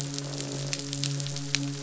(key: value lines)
label: biophony, midshipman
recorder: SoundTrap 500

label: biophony, croak
recorder: SoundTrap 500